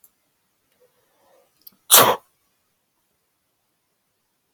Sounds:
Sneeze